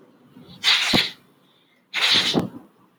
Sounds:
Sniff